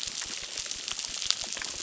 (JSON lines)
{"label": "biophony, crackle", "recorder": "SoundTrap 600"}